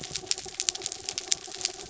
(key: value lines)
label: anthrophony, mechanical
recorder: SoundTrap 300